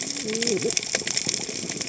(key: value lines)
label: biophony, cascading saw
recorder: HydroMoth